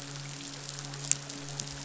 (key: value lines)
label: biophony, midshipman
recorder: SoundTrap 500